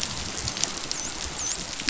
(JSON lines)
{"label": "biophony, dolphin", "recorder": "SoundTrap 500"}